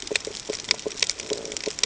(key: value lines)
label: ambient
recorder: HydroMoth